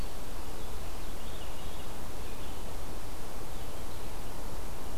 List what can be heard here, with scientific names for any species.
Catharus fuscescens